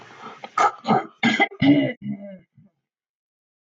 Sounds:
Throat clearing